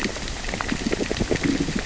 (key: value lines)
label: biophony, grazing
recorder: SoundTrap 600 or HydroMoth